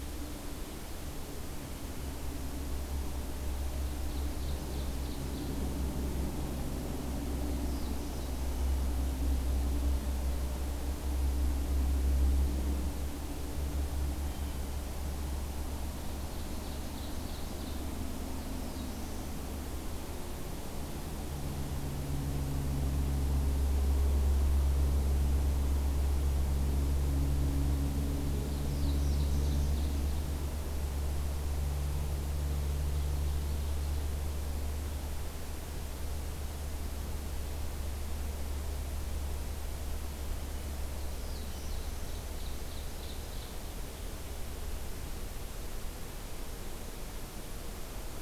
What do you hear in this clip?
Ovenbird, Black-throated Blue Warbler, Blue Jay